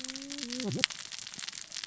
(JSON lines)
{"label": "biophony, cascading saw", "recorder": "SoundTrap 600 or HydroMoth"}